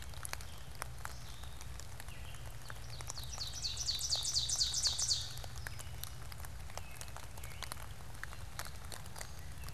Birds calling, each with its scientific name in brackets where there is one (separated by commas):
Gray Catbird (Dumetella carolinensis), Ovenbird (Seiurus aurocapilla)